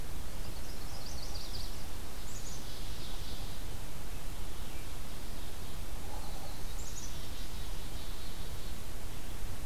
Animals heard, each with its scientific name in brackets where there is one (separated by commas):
Black-capped Chickadee (Poecile atricapillus), Chestnut-sided Warbler (Setophaga pensylvanica)